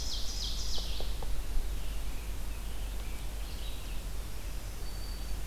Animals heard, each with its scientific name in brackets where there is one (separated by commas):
American Robin (Turdus migratorius), Black-throated Green Warbler (Setophaga virens), Ovenbird (Seiurus aurocapilla)